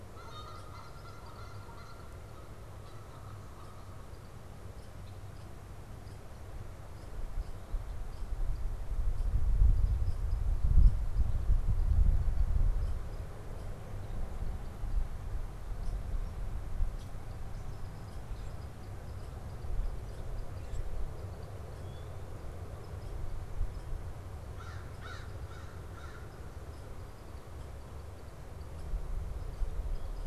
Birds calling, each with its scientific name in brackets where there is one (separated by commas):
American Crow (Corvus brachyrhynchos), Canada Goose (Branta canadensis)